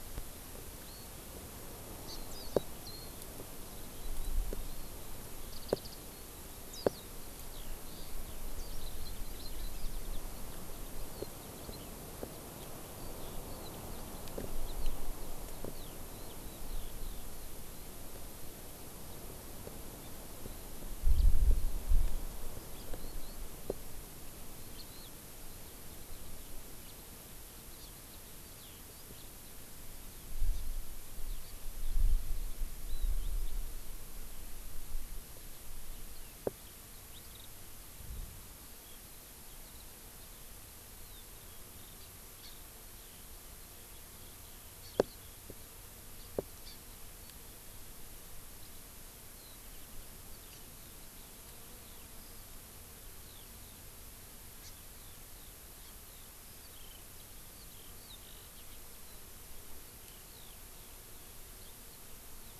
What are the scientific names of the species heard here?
Alauda arvensis, Chlorodrepanis virens, Zosterops japonicus